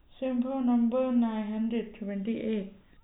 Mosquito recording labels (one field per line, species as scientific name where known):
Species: no mosquito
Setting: cup